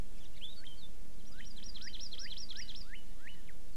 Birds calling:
Hawaii Amakihi (Chlorodrepanis virens), Northern Cardinal (Cardinalis cardinalis)

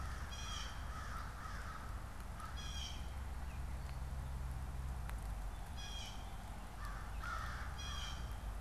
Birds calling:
American Crow (Corvus brachyrhynchos), Blue Jay (Cyanocitta cristata), Northern Cardinal (Cardinalis cardinalis)

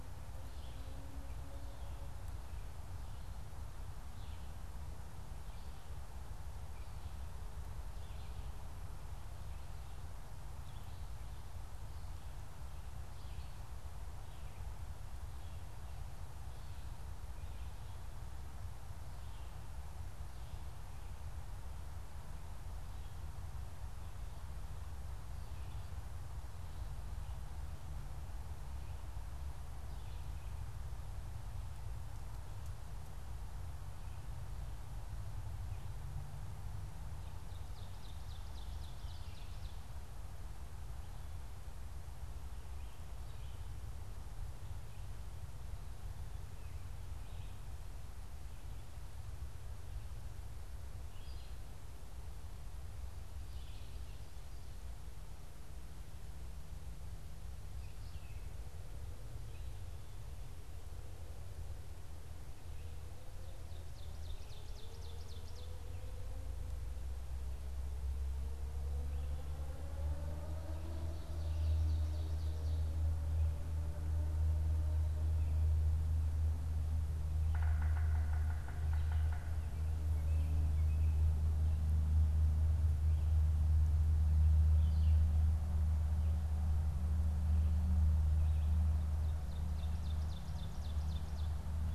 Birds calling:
Yellow-bellied Sapsucker (Sphyrapicus varius), Ovenbird (Seiurus aurocapilla), Red-eyed Vireo (Vireo olivaceus)

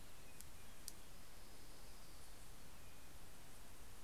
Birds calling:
Orange-crowned Warbler (Leiothlypis celata), Warbling Vireo (Vireo gilvus)

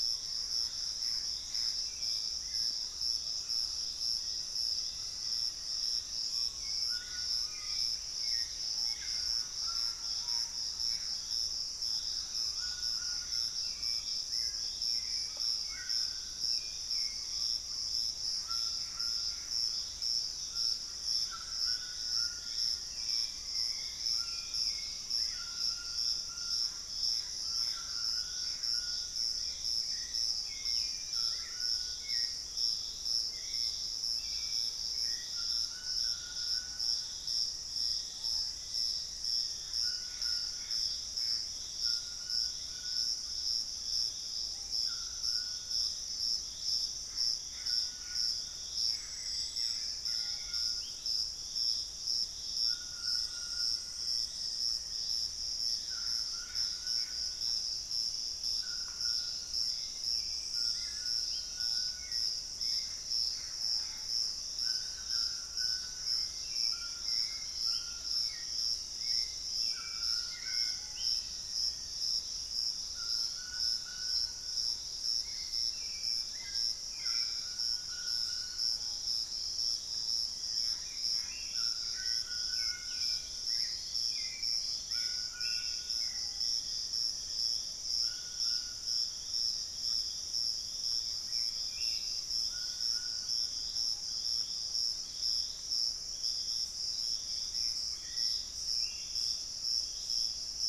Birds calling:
White-throated Toucan (Ramphastos tucanus), Wing-barred Piprites (Piprites chloris), Hauxwell's Thrush (Turdus hauxwelli), Cinnamon-rumped Foliage-gleaner (Philydor pyrrhodes), Buff-throated Woodcreeper (Xiphorhynchus guttatus), Piratic Flycatcher (Legatus leucophaius), White-bellied Tody-Tyrant (Hemitriccus griseipectus), unidentified bird, Gray Antbird (Cercomacra cinerascens), Screaming Piha (Lipaugus vociferans), Thrush-like Wren (Campylorhynchus turdinus), Black-faced Antthrush (Formicarius analis)

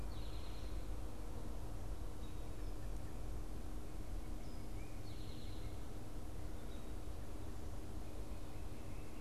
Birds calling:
Eastern Towhee (Pipilo erythrophthalmus), American Robin (Turdus migratorius)

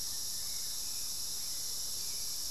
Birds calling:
Hauxwell's Thrush (Turdus hauxwelli), Speckled Chachalaca (Ortalis guttata), Buff-throated Woodcreeper (Xiphorhynchus guttatus)

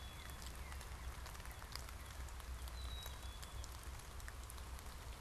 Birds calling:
Black-capped Chickadee (Poecile atricapillus), Northern Cardinal (Cardinalis cardinalis)

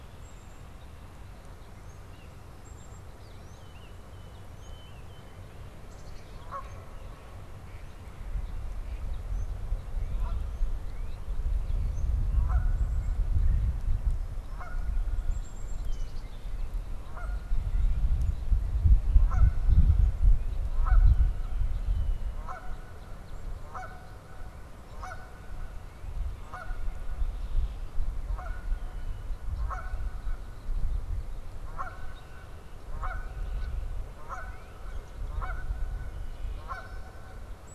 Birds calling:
Tufted Titmouse (Baeolophus bicolor), Black-capped Chickadee (Poecile atricapillus), Northern Cardinal (Cardinalis cardinalis), Canada Goose (Branta canadensis), Red-bellied Woodpecker (Melanerpes carolinus), Mallard (Anas platyrhynchos), Red-winged Blackbird (Agelaius phoeniceus)

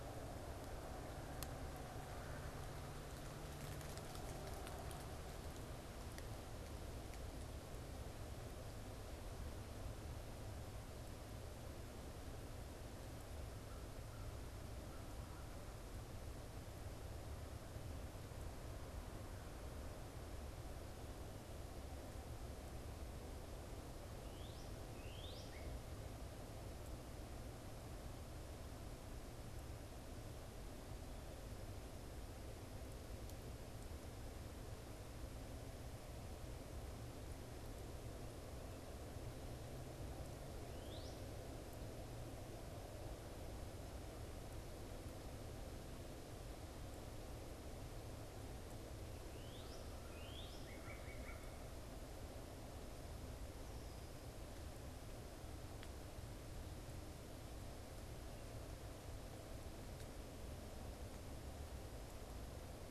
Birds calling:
American Crow (Corvus brachyrhynchos), Northern Cardinal (Cardinalis cardinalis)

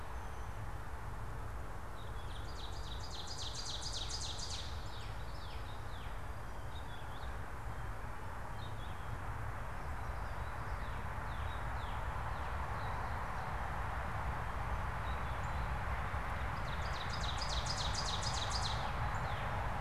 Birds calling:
Northern Cardinal (Cardinalis cardinalis), Purple Finch (Haemorhous purpureus), Ovenbird (Seiurus aurocapilla), Common Yellowthroat (Geothlypis trichas), unidentified bird

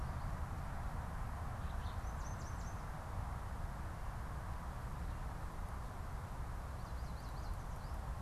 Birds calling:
Alder Flycatcher (Empidonax alnorum), Yellow Warbler (Setophaga petechia)

